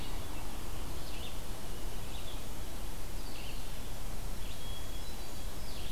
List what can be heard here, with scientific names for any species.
Vireo olivaceus, Catharus guttatus